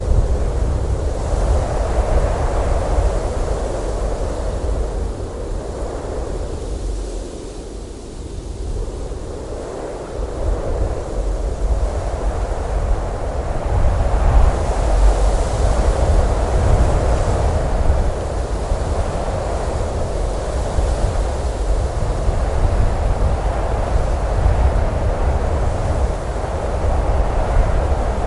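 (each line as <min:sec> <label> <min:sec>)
0:00.0 The wind blows strongly. 0:07.3
0:00.0 Trees rustle continuously in the wind with slightly varying intensity. 0:28.3
0:07.3 The wind blows with increasing strength, then stabilizes in intensity. 0:28.2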